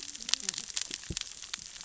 {"label": "biophony, cascading saw", "recorder": "SoundTrap 600 or HydroMoth"}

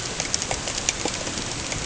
{"label": "ambient", "recorder": "HydroMoth"}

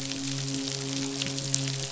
{"label": "biophony, midshipman", "recorder": "SoundTrap 500"}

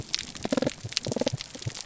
{"label": "biophony", "recorder": "SoundTrap 300"}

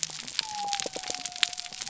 {"label": "biophony", "recorder": "SoundTrap 300"}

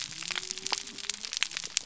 {"label": "biophony", "recorder": "SoundTrap 300"}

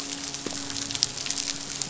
{"label": "biophony, midshipman", "recorder": "SoundTrap 500"}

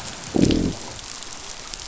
{"label": "biophony, growl", "recorder": "SoundTrap 500"}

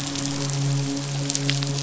{"label": "biophony, midshipman", "recorder": "SoundTrap 500"}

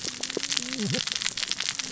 {"label": "biophony, cascading saw", "recorder": "SoundTrap 600 or HydroMoth"}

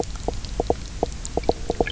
{"label": "biophony, knock croak", "recorder": "SoundTrap 300"}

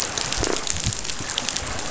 {"label": "biophony", "recorder": "SoundTrap 500"}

